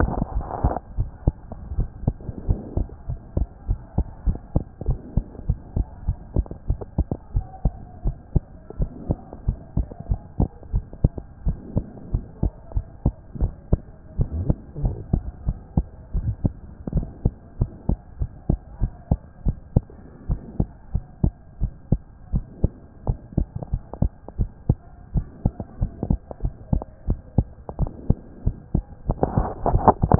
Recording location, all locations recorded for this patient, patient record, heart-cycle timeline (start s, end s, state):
pulmonary valve (PV)
aortic valve (AV)+pulmonary valve (PV)+tricuspid valve (TV)+mitral valve (MV)
#Age: Child
#Sex: Female
#Height: 133.0 cm
#Weight: 25.0 kg
#Pregnancy status: False
#Murmur: Absent
#Murmur locations: nan
#Most audible location: nan
#Systolic murmur timing: nan
#Systolic murmur shape: nan
#Systolic murmur grading: nan
#Systolic murmur pitch: nan
#Systolic murmur quality: nan
#Diastolic murmur timing: nan
#Diastolic murmur shape: nan
#Diastolic murmur grading: nan
#Diastolic murmur pitch: nan
#Diastolic murmur quality: nan
#Outcome: Abnormal
#Campaign: 2014 screening campaign
0.00	2.48	unannotated
2.48	2.60	S1
2.60	2.76	systole
2.76	2.88	S2
2.88	3.08	diastole
3.08	3.20	S1
3.20	3.36	systole
3.36	3.46	S2
3.46	3.68	diastole
3.68	3.78	S1
3.78	3.96	systole
3.96	4.04	S2
4.04	4.26	diastole
4.26	4.38	S1
4.38	4.54	systole
4.54	4.64	S2
4.64	4.86	diastole
4.86	4.98	S1
4.98	5.16	systole
5.16	5.24	S2
5.24	5.48	diastole
5.48	5.58	S1
5.58	5.76	systole
5.76	5.86	S2
5.86	6.06	diastole
6.06	6.18	S1
6.18	6.36	systole
6.36	6.46	S2
6.46	6.68	diastole
6.68	6.80	S1
6.80	6.96	systole
6.96	7.06	S2
7.06	7.34	diastole
7.34	7.46	S1
7.46	7.64	systole
7.64	7.74	S2
7.74	8.04	diastole
8.04	8.16	S1
8.16	8.34	systole
8.34	8.44	S2
8.44	8.78	diastole
8.78	8.90	S1
8.90	9.08	systole
9.08	9.18	S2
9.18	9.46	diastole
9.46	9.58	S1
9.58	9.76	systole
9.76	9.86	S2
9.86	10.10	diastole
10.10	10.20	S1
10.20	10.38	systole
10.38	10.48	S2
10.48	10.72	diastole
10.72	10.84	S1
10.84	11.02	systole
11.02	11.12	S2
11.12	11.46	diastole
11.46	11.58	S1
11.58	11.74	systole
11.74	11.84	S2
11.84	12.12	diastole
12.12	12.24	S1
12.24	12.42	systole
12.42	12.52	S2
12.52	12.74	diastole
12.74	12.86	S1
12.86	13.04	systole
13.04	13.14	S2
13.14	13.40	diastole
13.40	13.52	S1
13.52	13.70	systole
13.70	13.80	S2
13.80	14.18	diastole
14.18	14.28	S1
14.28	14.40	systole
14.40	14.54	S2
14.54	14.80	diastole
14.80	14.94	S1
14.94	15.12	systole
15.12	15.24	S2
15.24	15.46	diastole
15.46	15.58	S1
15.58	15.76	systole
15.76	15.86	S2
15.86	16.16	diastole
16.16	16.34	S1
16.34	16.44	systole
16.44	16.54	S2
16.54	16.94	diastole
16.94	17.06	S1
17.06	17.24	systole
17.24	17.34	S2
17.34	17.60	diastole
17.60	17.72	S1
17.72	17.88	systole
17.88	17.98	S2
17.98	18.20	diastole
18.20	18.30	S1
18.30	18.48	systole
18.48	18.58	S2
18.58	18.80	diastole
18.80	18.92	S1
18.92	19.10	systole
19.10	19.20	S2
19.20	19.46	diastole
19.46	19.56	S1
19.56	19.74	systole
19.74	19.84	S2
19.84	20.28	diastole
20.28	20.40	S1
20.40	20.58	systole
20.58	20.68	S2
20.68	20.94	diastole
20.94	21.04	S1
21.04	21.22	systole
21.22	21.32	S2
21.32	21.60	diastole
21.60	21.72	S1
21.72	21.90	systole
21.90	22.00	S2
22.00	22.32	diastole
22.32	22.44	S1
22.44	22.62	systole
22.62	22.72	S2
22.72	23.06	diastole
23.06	23.18	S1
23.18	23.36	systole
23.36	23.48	S2
23.48	23.72	diastole
23.72	23.82	S1
23.82	24.00	systole
24.00	24.10	S2
24.10	24.38	diastole
24.38	24.50	S1
24.50	24.68	systole
24.68	24.78	S2
24.78	25.14	diastole
25.14	25.26	S1
25.26	25.44	systole
25.44	25.52	S2
25.52	25.80	diastole
25.80	25.92	S1
25.92	26.08	systole
26.08	26.18	S2
26.18	26.42	diastole
26.42	26.54	S1
26.54	26.72	systole
26.72	26.82	S2
26.82	27.08	diastole
27.08	27.18	S1
27.18	27.36	systole
27.36	27.46	S2
27.46	27.78	diastole
27.78	27.90	S1
27.90	28.08	systole
28.08	28.18	S2
28.18	28.44	diastole
28.44	28.56	S1
28.56	28.74	systole
28.74	28.84	S2
28.84	29.08	diastole
29.08	30.19	unannotated